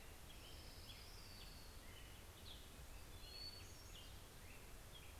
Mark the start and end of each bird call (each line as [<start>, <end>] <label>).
[0.00, 3.39] Orange-crowned Warbler (Leiothlypis celata)
[0.00, 5.20] Black-headed Grosbeak (Pheucticus melanocephalus)
[0.00, 5.20] Hermit Thrush (Catharus guttatus)